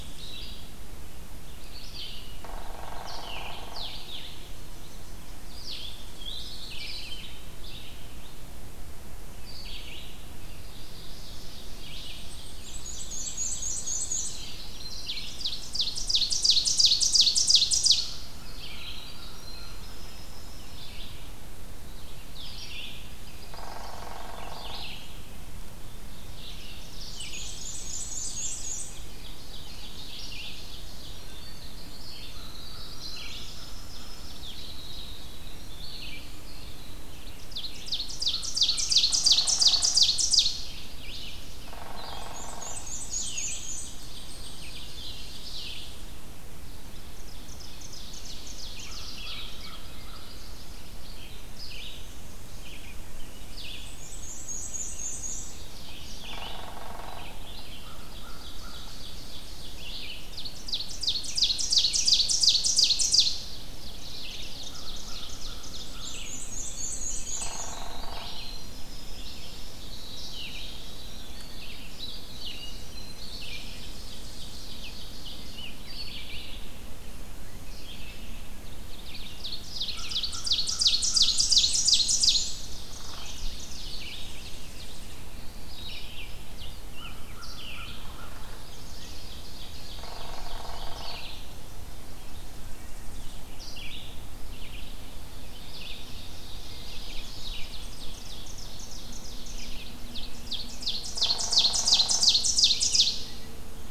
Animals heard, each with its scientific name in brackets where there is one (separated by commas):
Rose-breasted Grosbeak (Pheucticus ludovicianus), Ovenbird (Seiurus aurocapilla), Blue-headed Vireo (Vireo solitarius), Wood Thrush (Hylocichla mustelina), Yellow Warbler (Setophaga petechia), Blackpoll Warbler (Setophaga striata), Red-eyed Vireo (Vireo olivaceus), Tennessee Warbler (Leiothlypis peregrina), Hairy Woodpecker (Dryobates villosus), American Crow (Corvus brachyrhynchos), Black-and-white Warbler (Mniotilta varia), Winter Wren (Troglodytes hiemalis)